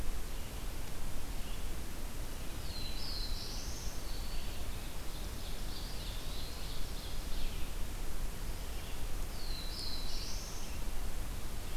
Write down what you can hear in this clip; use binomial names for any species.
Setophaga caerulescens, Seiurus aurocapilla, Contopus virens